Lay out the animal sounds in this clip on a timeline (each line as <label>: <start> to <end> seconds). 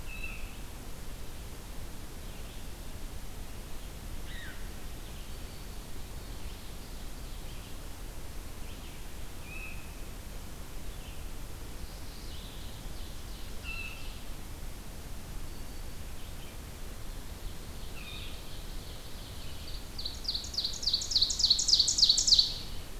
unidentified call: 0.0 to 0.5 seconds
Red-eyed Vireo (Vireo olivaceus): 2.1 to 16.6 seconds
unidentified call: 4.2 to 4.7 seconds
Ovenbird (Seiurus aurocapilla): 6.4 to 7.9 seconds
unidentified call: 9.3 to 10.0 seconds
Mourning Warbler (Geothlypis philadelphia): 11.8 to 12.8 seconds
Ovenbird (Seiurus aurocapilla): 12.9 to 14.5 seconds
unidentified call: 13.6 to 14.0 seconds
Ovenbird (Seiurus aurocapilla): 17.1 to 23.0 seconds
unidentified call: 17.8 to 18.5 seconds